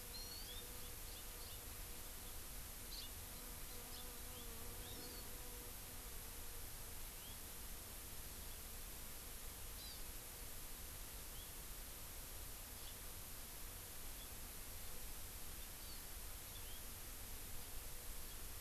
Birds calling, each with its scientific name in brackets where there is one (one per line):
House Finch (Haemorhous mexicanus)
Hawaii Amakihi (Chlorodrepanis virens)